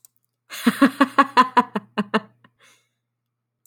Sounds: Laughter